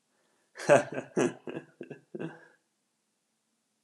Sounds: Laughter